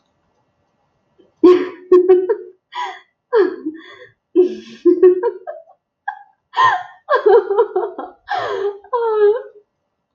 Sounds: Laughter